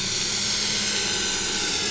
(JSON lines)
{"label": "anthrophony, boat engine", "recorder": "SoundTrap 500"}